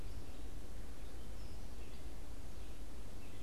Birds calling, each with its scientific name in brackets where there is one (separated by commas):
Red-eyed Vireo (Vireo olivaceus)